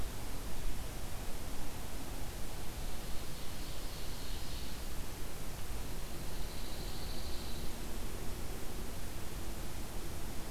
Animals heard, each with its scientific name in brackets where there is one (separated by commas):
Ovenbird (Seiurus aurocapilla), Pine Warbler (Setophaga pinus)